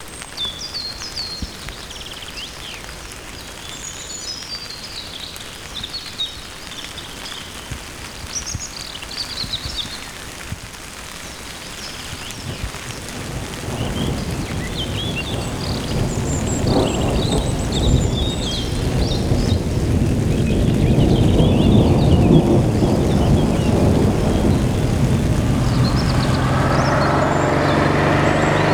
Are the creatures making high pitched sounds alive?
yes